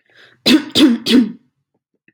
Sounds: Cough